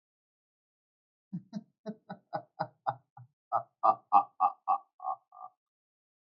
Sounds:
Laughter